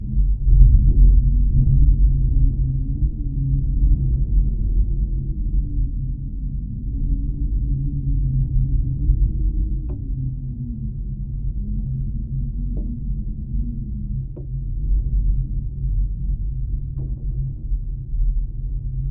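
0.0s A dull, low wind blowing steadily. 19.1s

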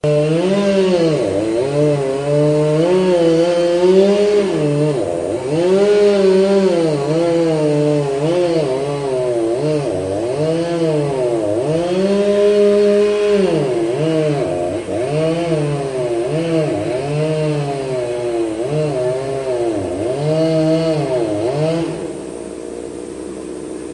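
0.0s A chainsaw is running loudly. 23.9s

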